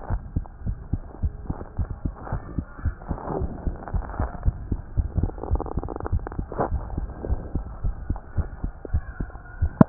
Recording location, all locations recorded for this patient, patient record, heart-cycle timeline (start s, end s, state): tricuspid valve (TV)
aortic valve (AV)+pulmonary valve (PV)+tricuspid valve (TV)+mitral valve (MV)
#Age: Child
#Sex: Male
#Height: 105.0 cm
#Weight: 18.1 kg
#Pregnancy status: False
#Murmur: Unknown
#Murmur locations: nan
#Most audible location: nan
#Systolic murmur timing: nan
#Systolic murmur shape: nan
#Systolic murmur grading: nan
#Systolic murmur pitch: nan
#Systolic murmur quality: nan
#Diastolic murmur timing: nan
#Diastolic murmur shape: nan
#Diastolic murmur grading: nan
#Diastolic murmur pitch: nan
#Diastolic murmur quality: nan
#Outcome: Abnormal
#Campaign: 2015 screening campaign
0.00	0.08	unannotated
0.08	0.20	S1
0.20	0.32	systole
0.32	0.46	S2
0.46	0.64	diastole
0.64	0.78	S1
0.78	0.90	systole
0.90	1.04	S2
1.04	1.22	diastole
1.22	1.32	S1
1.32	1.46	systole
1.46	1.56	S2
1.56	1.78	diastole
1.78	1.88	S1
1.88	2.03	systole
2.03	2.14	S2
2.14	2.30	diastole
2.30	2.42	S1
2.42	2.54	systole
2.54	2.64	S2
2.64	2.84	diastole
2.84	2.94	S1
2.94	3.08	systole
3.08	3.18	S2
3.18	3.36	diastole
3.36	3.50	S1
3.50	3.64	systole
3.64	3.78	S2
3.78	3.92	diastole
3.92	4.06	S1
4.06	4.18	systole
4.18	4.30	S2
4.30	4.44	diastole
4.44	4.56	S1
4.56	4.68	systole
4.68	4.80	S2
4.80	4.96	diastole
4.96	5.04	S1
5.04	5.22	systole
5.22	5.28	S2
5.28	5.50	diastole
5.50	5.58	S1
5.58	5.75	systole
5.75	5.82	S2
5.82	6.10	diastole
6.10	6.24	S1
6.24	6.36	systole
6.36	6.48	S2
6.48	6.70	diastole
6.70	6.84	S1
6.84	6.94	systole
6.94	7.10	S2
7.10	7.26	diastole
7.26	7.44	S1
7.44	7.54	systole
7.54	7.64	S2
7.64	7.84	diastole
7.84	7.94	S1
7.94	8.08	systole
8.08	8.20	S2
8.20	8.38	diastole
8.38	8.50	S1
8.50	8.62	systole
8.62	8.74	S2
8.74	8.92	diastole
8.92	9.04	S1
9.04	9.18	systole
9.18	9.27	S2
9.27	9.58	diastole
9.58	9.72	S1
9.72	9.89	unannotated